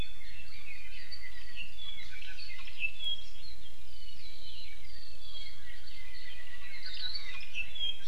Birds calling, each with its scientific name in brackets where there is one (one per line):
Apapane (Himatione sanguinea)
Hawaii Akepa (Loxops coccineus)